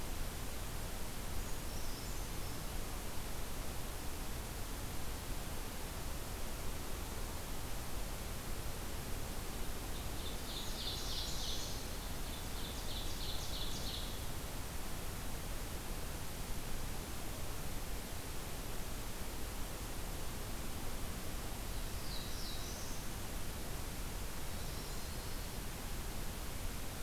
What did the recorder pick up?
Brown Creeper, Ovenbird, Black-throated Blue Warbler, Yellow-rumped Warbler